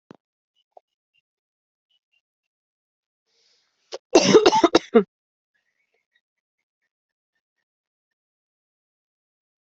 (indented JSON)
{
  "expert_labels": [
    {
      "quality": "good",
      "cough_type": "dry",
      "dyspnea": false,
      "wheezing": false,
      "stridor": false,
      "choking": false,
      "congestion": false,
      "nothing": true,
      "diagnosis": "COVID-19",
      "severity": "mild"
    }
  ],
  "age": 30,
  "gender": "female",
  "respiratory_condition": true,
  "fever_muscle_pain": false,
  "status": "healthy"
}